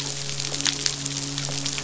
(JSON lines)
{"label": "biophony, midshipman", "recorder": "SoundTrap 500"}